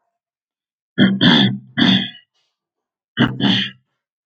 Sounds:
Throat clearing